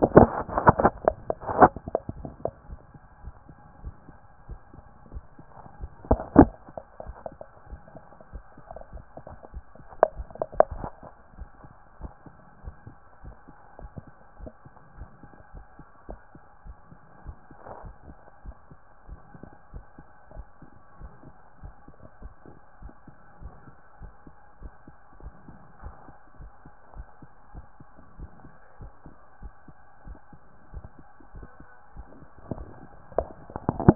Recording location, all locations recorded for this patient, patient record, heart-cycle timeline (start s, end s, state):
tricuspid valve (TV)
aortic valve (AV)+pulmonary valve (PV)+tricuspid valve (TV)
#Age: Child
#Sex: Male
#Height: 164.0 cm
#Weight: 70.7 kg
#Pregnancy status: False
#Murmur: Absent
#Murmur locations: nan
#Most audible location: nan
#Systolic murmur timing: nan
#Systolic murmur shape: nan
#Systolic murmur grading: nan
#Systolic murmur pitch: nan
#Systolic murmur quality: nan
#Diastolic murmur timing: nan
#Diastolic murmur shape: nan
#Diastolic murmur grading: nan
#Diastolic murmur pitch: nan
#Diastolic murmur quality: nan
#Outcome: Normal
#Campaign: 2014 screening campaign
0.00	11.36	unannotated
11.36	11.48	S1
11.48	11.62	systole
11.62	11.72	S2
11.72	12.00	diastole
12.00	12.12	S1
12.12	12.26	systole
12.26	12.36	S2
12.36	12.64	diastole
12.64	12.74	S1
12.74	12.86	systole
12.86	12.98	S2
12.98	13.24	diastole
13.24	13.36	S1
13.36	13.50	systole
13.50	13.60	S2
13.60	13.80	diastole
13.80	13.90	S1
13.90	14.04	systole
14.04	14.14	S2
14.14	14.40	diastole
14.40	14.52	S1
14.52	14.66	systole
14.66	14.74	S2
14.74	14.98	diastole
14.98	15.10	S1
15.10	15.22	systole
15.22	15.32	S2
15.32	15.54	diastole
15.54	15.66	S1
15.66	15.78	systole
15.78	15.88	S2
15.88	16.08	diastole
16.08	16.20	S1
16.20	16.34	systole
16.34	16.44	S2
16.44	16.64	diastole
16.64	16.76	S1
16.76	16.90	systole
16.90	17.00	S2
17.00	17.26	diastole
17.26	17.36	S1
17.36	17.50	systole
17.50	17.60	S2
17.60	17.84	diastole
17.84	17.94	S1
17.94	18.06	systole
18.06	18.18	S2
18.18	18.44	diastole
18.44	18.56	S1
18.56	18.70	systole
18.70	18.80	S2
18.80	19.08	diastole
19.08	19.20	S1
19.20	19.40	systole
19.40	19.48	S2
19.48	19.72	diastole
19.72	19.84	S1
19.84	19.98	systole
19.98	20.10	S2
20.10	20.34	diastole
20.34	20.46	S1
20.46	20.62	systole
20.62	20.70	S2
20.70	21.00	diastole
21.00	21.12	S1
21.12	21.26	systole
21.26	21.36	S2
21.36	21.62	diastole
21.62	21.74	S1
21.74	21.88	systole
21.88	21.98	S2
21.98	22.22	diastole
22.22	22.32	S1
22.32	22.48	systole
22.48	22.58	S2
22.58	22.82	diastole
22.82	22.92	S1
22.92	23.06	systole
23.06	23.16	S2
23.16	23.42	diastole
23.42	23.52	S1
23.52	23.66	systole
23.66	23.76	S2
23.76	24.00	diastole
24.00	24.12	S1
24.12	24.26	systole
24.26	24.36	S2
24.36	24.60	diastole
24.60	24.72	S1
24.72	24.86	systole
24.86	24.96	S2
24.96	25.22	diastole
25.22	25.34	S1
25.34	25.48	systole
25.48	25.58	S2
25.58	25.82	diastole
25.82	25.94	S1
25.94	26.08	systole
26.08	26.18	S2
26.18	26.40	diastole
26.40	26.52	S1
26.52	26.64	systole
26.64	26.74	S2
26.74	26.96	diastole
26.96	27.06	S1
27.06	27.22	systole
27.22	27.30	S2
27.30	27.54	diastole
27.54	27.64	S1
27.64	27.78	systole
27.78	27.88	S2
27.88	28.18	diastole
28.18	28.30	S1
28.30	28.44	systole
28.44	28.54	S2
28.54	28.80	diastole
28.80	28.92	S1
28.92	29.06	systole
29.06	29.16	S2
29.16	29.42	diastole
29.42	29.52	S1
29.52	29.68	systole
29.68	29.78	S2
29.78	30.06	diastole
30.06	30.18	S1
30.18	30.34	systole
30.34	30.44	S2
30.44	30.74	diastole
30.74	30.84	S1
30.84	30.98	systole
30.98	31.08	S2
31.08	31.34	diastole
31.34	31.48	S1
31.48	31.62	systole
31.62	31.70	S2
31.70	31.96	diastole
31.96	33.95	unannotated